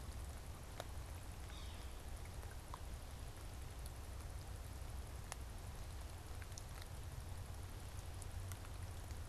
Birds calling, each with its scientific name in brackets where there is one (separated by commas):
Yellow-bellied Sapsucker (Sphyrapicus varius)